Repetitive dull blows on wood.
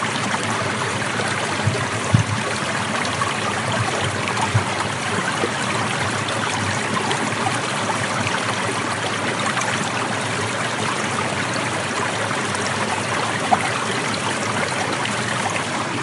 1.6 5.6

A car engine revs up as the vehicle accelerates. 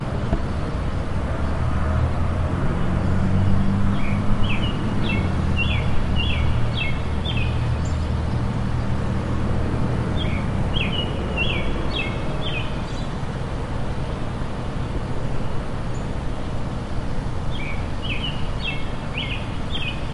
1.3 9.2

